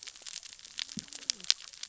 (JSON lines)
{"label": "biophony, cascading saw", "recorder": "SoundTrap 600 or HydroMoth"}